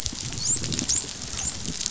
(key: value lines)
label: biophony, dolphin
recorder: SoundTrap 500